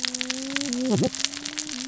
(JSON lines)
{"label": "biophony, cascading saw", "recorder": "SoundTrap 600 or HydroMoth"}